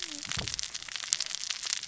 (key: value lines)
label: biophony, cascading saw
recorder: SoundTrap 600 or HydroMoth